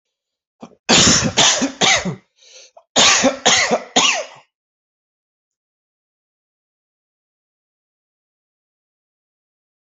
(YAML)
expert_labels:
- quality: ok
  cough_type: dry
  dyspnea: false
  wheezing: false
  stridor: false
  choking: false
  congestion: false
  nothing: true
  diagnosis: COVID-19
  severity: mild
age: 37
gender: male
respiratory_condition: false
fever_muscle_pain: false
status: symptomatic